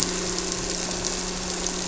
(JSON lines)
{"label": "anthrophony, boat engine", "recorder": "SoundTrap 300"}